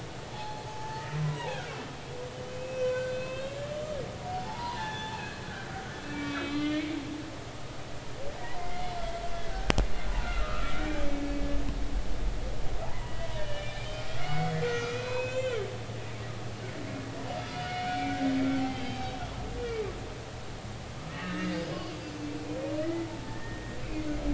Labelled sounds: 0.3	1.7	humpback whale, 0.80 to 4.4 kHz
2.5	3.6	humpback whale, 1.4 to 5.7 kHz
4.3	5.2	humpback whale, 0.80 to 3.6 kHz
6.1	7.0	humpback whale, 1.1 to 4.2 kHz
8.6	9.8	humpback whale, 1.5 to 2.2 kHz
10.2	11.0	humpback whale, 1.2 to 2.5 kHz
12.8	13.8	humpback whale, 0.80 to 3.0 kHz
14.1	15.6	humpback whale, 1.2 to 6.4 kHz
17.5	18.2	humpback whale, 2.2 to 3.0 kHz
18.7	19.8	humpback whale, 2.2 to 3.2 kHz
21.1	21.8	humpback whale, 1.2 to 5.1 kHz
22.8	23.8	humpback whale, 1.7 to 2.0 kHz

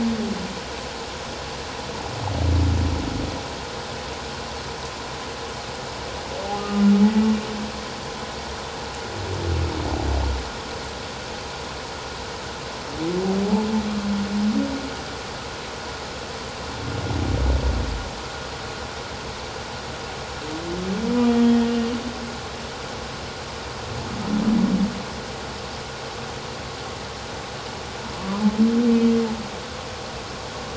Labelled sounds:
6.5	6.8	humpback whale, 1.2 to 1.3 kHz
21.3	22.0	humpback whale, 2.8 to 3.3 kHz

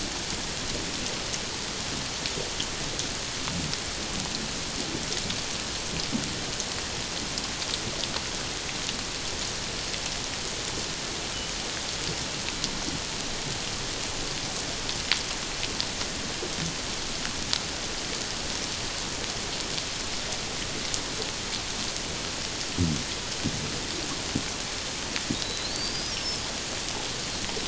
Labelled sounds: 25.3	26.4	killer whale, Bigg's (transient), 3.7 to 5.6 kHz

